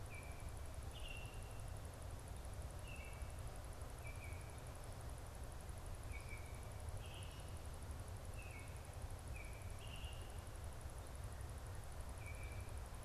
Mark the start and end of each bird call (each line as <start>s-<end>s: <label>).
0.0s-12.8s: Baltimore Oriole (Icterus galbula)